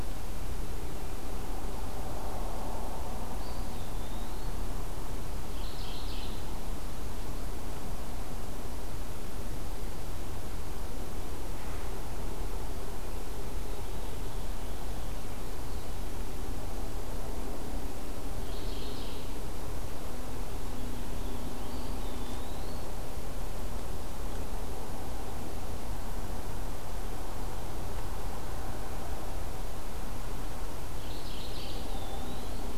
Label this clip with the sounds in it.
Eastern Wood-Pewee, Mourning Warbler